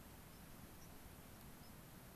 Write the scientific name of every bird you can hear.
Zonotrichia leucophrys